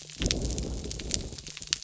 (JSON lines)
{"label": "biophony", "recorder": "SoundTrap 300"}